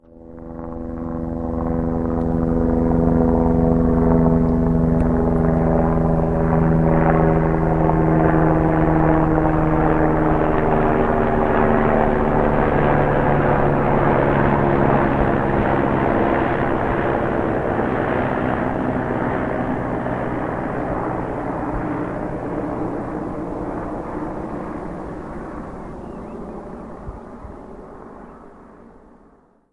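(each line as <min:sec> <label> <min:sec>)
0:00.0 A helicopter flies past, growing louder and then quieter. 0:29.7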